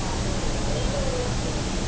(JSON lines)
{"label": "biophony", "recorder": "SoundTrap 300"}